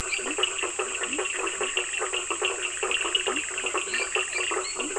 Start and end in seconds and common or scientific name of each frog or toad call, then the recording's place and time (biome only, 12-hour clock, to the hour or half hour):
0.0	0.4	lesser tree frog
0.0	4.7	Bischoff's tree frog
0.0	4.9	blacksmith tree frog
0.0	4.9	Cochran's lime tree frog
0.4	4.9	Leptodactylus latrans
3.8	4.9	lesser tree frog
Atlantic Forest, ~10pm